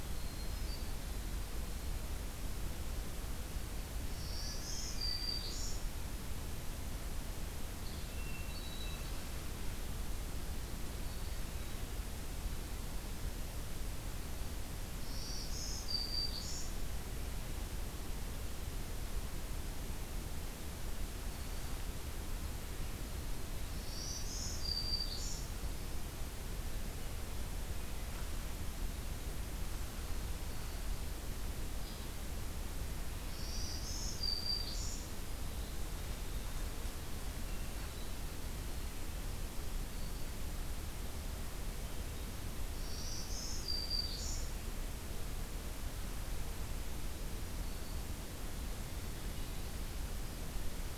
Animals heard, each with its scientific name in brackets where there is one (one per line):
Hermit Thrush (Catharus guttatus)
Black-throated Green Warbler (Setophaga virens)